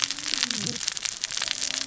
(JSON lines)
{"label": "biophony, cascading saw", "recorder": "SoundTrap 600 or HydroMoth"}